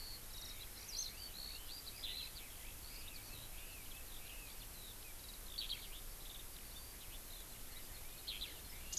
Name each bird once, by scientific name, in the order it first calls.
Alauda arvensis